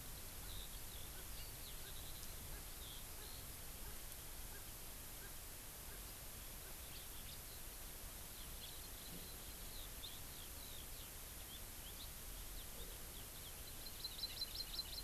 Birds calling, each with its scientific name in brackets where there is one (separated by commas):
Erckel's Francolin (Pternistis erckelii), Hawaii Amakihi (Chlorodrepanis virens), Eurasian Skylark (Alauda arvensis)